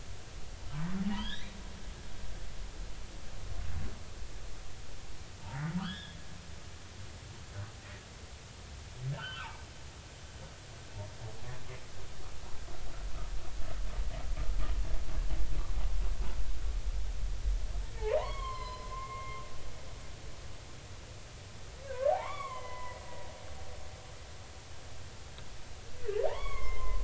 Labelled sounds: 1.0	1.6	humpback whale, 0.80 to 4.2 kHz
5.8	6.2	humpback whale, 0.93 to 3.7 kHz
9.1	9.6	humpback whale, 0.83 to 3.3 kHz
18.0	19.4	humpback whale, 0.80 to 5.2 kHz
21.8	23.1	humpback whale, 0.80 to 3.5 kHz
26.3	27.0	humpback whale, 0.80 to 3.5 kHz

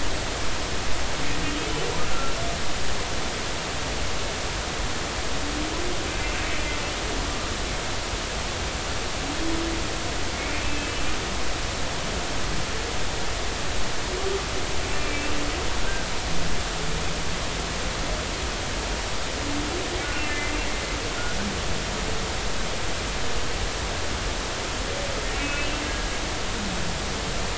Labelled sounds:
2.1	2.3	humpback whale, 1.3 to 1.5 kHz
10.3	11.1	humpback whale, 2.1 to 2.7 kHz
15.0	15.4	humpback whale, 2.3 to 2.8 kHz
20.1	20.6	humpback whale, 2.0 to 2.8 kHz
25.4	26.1	humpback whale, 1.6 to 2.7 kHz

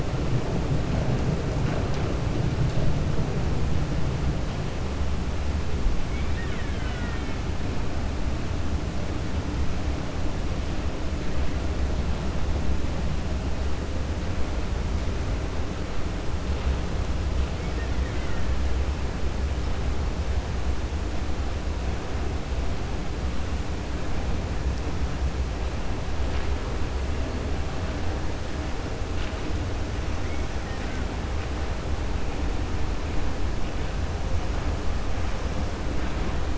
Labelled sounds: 6.0	7.4	killer whale, Bigg's (transient), 1.4 to 3.7 kHz
17.6	18.5	killer whale, Bigg's (transient), 1.4 to 3.2 kHz
30.6	31.0	killer whale, Bigg's (transient), 1.1 to 2.6 kHz

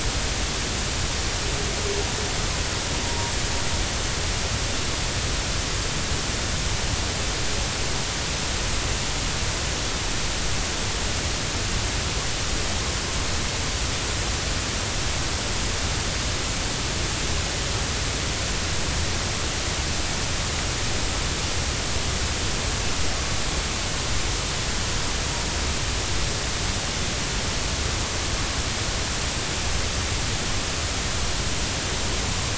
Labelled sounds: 3.0	3.3	humpback whale, 0.90 to 0.99 kHz

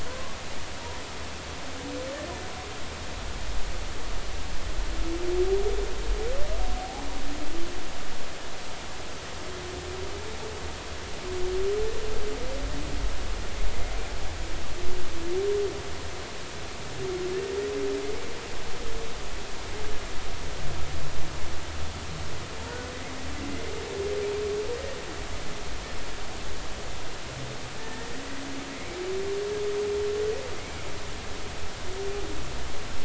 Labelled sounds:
6.8	7.0	humpback whale, 0.80 to 0.86 kHz
22.7	22.9	humpback whale, 1.4 to 1.5 kHz
27.8	29.0	humpback whale, 1.7 to 2.4 kHz

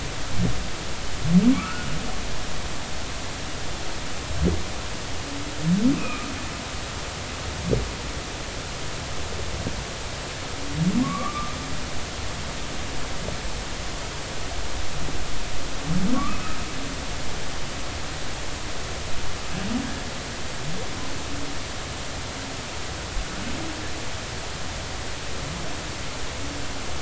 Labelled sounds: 1.5	1.9	humpback whale, 1.1 to 1.5 kHz
6.0	6.3	humpback whale, 1.2 to 2.6 kHz
11.0	11.6	humpback whale, 1.0 to 2.4 kHz
16.1	16.6	humpback whale, 0.96 to 1.4 kHz

